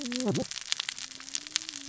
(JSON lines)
{"label": "biophony, cascading saw", "recorder": "SoundTrap 600 or HydroMoth"}